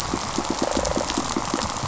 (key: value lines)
label: biophony, rattle response
recorder: SoundTrap 500

label: biophony, pulse
recorder: SoundTrap 500